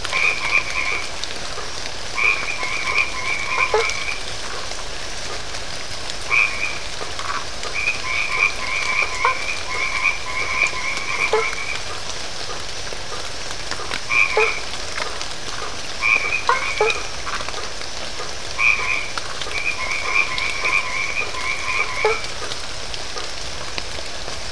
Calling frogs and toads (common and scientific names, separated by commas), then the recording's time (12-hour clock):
white-edged tree frog (Boana albomarginata), blacksmith tree frog (Boana faber)
8:30pm